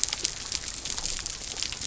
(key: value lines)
label: biophony
recorder: SoundTrap 300